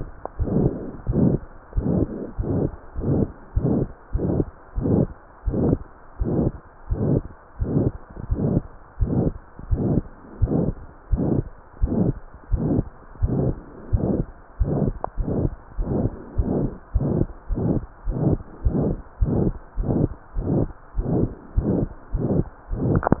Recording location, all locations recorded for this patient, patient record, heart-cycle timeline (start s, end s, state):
pulmonary valve (PV)
pulmonary valve (PV)+tricuspid valve (TV)+mitral valve (MV)
#Age: Child
#Sex: Female
#Height: 112.0 cm
#Weight: 21.2 kg
#Pregnancy status: False
#Murmur: Present
#Murmur locations: mitral valve (MV)+pulmonary valve (PV)+tricuspid valve (TV)
#Most audible location: pulmonary valve (PV)
#Systolic murmur timing: Holosystolic
#Systolic murmur shape: Diamond
#Systolic murmur grading: I/VI
#Systolic murmur pitch: Medium
#Systolic murmur quality: Harsh
#Diastolic murmur timing: nan
#Diastolic murmur shape: nan
#Diastolic murmur grading: nan
#Diastolic murmur pitch: nan
#Diastolic murmur quality: nan
#Outcome: Abnormal
#Campaign: 2015 screening campaign
0.00	0.12	unannotated
0.12	0.35	diastole
0.35	0.46	S1
0.46	0.63	systole
0.63	0.73	S2
0.73	1.04	diastole
1.04	1.17	S1
1.17	1.30	systole
1.30	1.42	S2
1.42	1.71	diastole
1.71	1.86	S1
1.86	1.94	systole
1.94	2.10	S2
2.10	2.36	diastole
2.36	2.47	S1
2.47	2.61	systole
2.61	2.72	S2
2.72	2.94	diastole
2.94	3.05	S1
3.05	3.18	systole
3.18	3.30	S2
3.30	3.53	diastole
3.53	3.64	S1
3.64	3.77	systole
3.77	3.86	S2
3.86	4.13	diastole
4.13	4.23	S1
4.23	4.36	systole
4.36	4.46	S2
4.46	4.76	diastole
4.76	4.84	S1
4.84	4.90	systole
4.90	5.06	S2
5.06	5.42	diastole
5.42	5.58	S1
5.58	5.64	systole
5.64	5.80	S2
5.80	6.16	diastole
6.16	6.28	S1
6.28	6.42	systole
6.42	6.52	S2
6.52	6.90	diastole
6.90	7.02	S1
7.02	7.13	systole
7.13	7.24	S2
7.24	7.58	diastole
7.58	7.70	S1
7.70	7.83	systole
7.83	7.92	S2
7.92	8.30	diastole
8.30	8.42	S1
8.42	8.52	systole
8.52	8.64	S2
8.64	8.97	diastole
8.97	9.12	S1
9.12	9.21	systole
9.21	9.32	S2
9.32	9.68	diastole
9.68	9.80	S1
9.80	9.92	systole
9.92	10.02	S2
10.02	10.37	diastole
10.37	10.50	S1
10.50	10.60	systole
10.60	10.74	S2
10.74	11.08	diastole
11.08	11.24	S1
11.24	11.32	systole
11.32	11.46	S2
11.46	11.78	diastole
11.78	11.92	S1
11.92	11.98	systole
11.98	12.14	S2
12.14	12.48	diastole
12.48	12.64	S1
12.64	12.75	systole
12.75	12.86	S2
12.86	13.20	diastole
13.20	13.32	S1
13.32	13.40	systole
13.40	13.54	S2
13.54	13.90	diastole
13.90	14.08	S1
14.08	14.18	systole
14.18	14.26	S2
14.26	14.60	diastole
14.60	14.72	S1
14.72	14.80	systole
14.80	14.94	S2
14.94	15.14	diastole
15.14	15.26	S1
15.26	15.40	systole
15.40	15.50	S2
15.50	15.76	diastole
15.76	15.88	S1
15.88	16.00	systole
16.00	16.14	S2
16.14	16.34	diastole
16.34	16.46	S1
16.46	16.58	systole
16.58	16.73	S2
16.73	16.94	diastole
16.94	17.06	S1
17.06	17.16	systole
17.16	17.28	S2
17.28	17.44	diastole
17.44	17.58	S1
17.58	17.72	systole
17.72	17.80	S2
17.80	18.06	diastole
18.06	18.16	S1
18.16	18.29	systole
18.29	18.40	S2
18.40	18.62	diastole
18.62	18.76	S1
18.76	18.88	systole
18.88	19.02	S2
19.02	19.17	diastole
19.17	19.31	S1
19.31	19.42	systole
19.42	19.54	S2
19.54	19.75	diastole
19.75	19.88	S1
19.88	20.00	systole
20.00	20.12	S2
20.12	20.33	diastole
20.33	20.48	S1
20.48	20.57	systole
20.57	20.68	S2
20.68	20.92	diastole
20.92	21.05	S1
21.05	21.18	systole
21.18	21.29	S2
21.29	21.54	diastole
21.54	21.66	S1
21.66	21.78	systole
21.78	21.90	S2
21.90	22.10	diastole
22.10	22.23	S1
22.23	22.34	systole
22.34	22.46	S2
22.46	22.68	diastole
22.68	23.20	unannotated